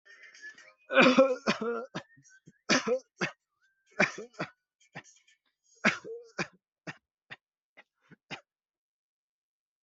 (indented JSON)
{
  "expert_labels": [
    {
      "quality": "ok",
      "cough_type": "dry",
      "dyspnea": false,
      "wheezing": false,
      "stridor": false,
      "choking": false,
      "congestion": false,
      "nothing": true,
      "diagnosis": "obstructive lung disease",
      "severity": "severe"
    }
  ],
  "age": 21,
  "gender": "other",
  "respiratory_condition": false,
  "fever_muscle_pain": true,
  "status": "COVID-19"
}